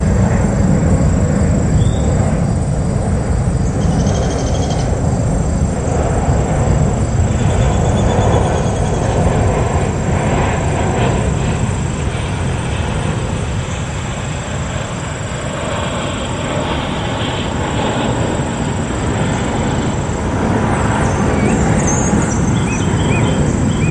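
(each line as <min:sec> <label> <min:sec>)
0:00.2 Insects are sounding continually. 0:23.9
0:03.7 Birds chirp briefly. 0:05.5
0:10.0 An airplane is descending. 0:16.7
0:20.5 Birds chirp simultaneously in public. 0:23.9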